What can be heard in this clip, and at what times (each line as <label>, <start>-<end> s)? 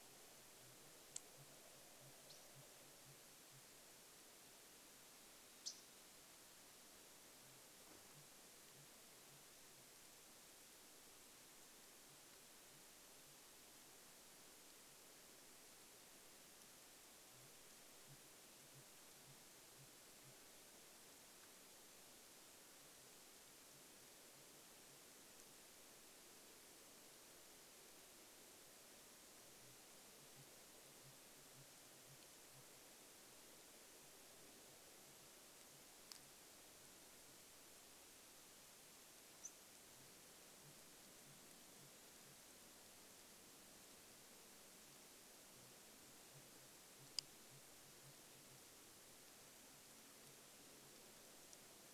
Sooty Grouse song, 0-4 s
unidentified bird chip note, 2-6 s
Sooty Grouse song, 6-10 s
Red-breasted Nuthatch song, 12-14 s
Sooty Grouse song, 12-14 s
Sooty Grouse song, 16-26 s
Sooty Grouse song, 28-38 s
unidentified bird chip note, 38-40 s
Sooty Grouse song, 40-52 s